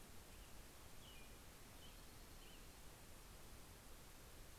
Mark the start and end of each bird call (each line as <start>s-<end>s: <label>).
0.0s-2.8s: American Robin (Turdus migratorius)
0.0s-3.4s: Dark-eyed Junco (Junco hyemalis)